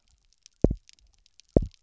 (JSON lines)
{"label": "biophony, double pulse", "recorder": "SoundTrap 300"}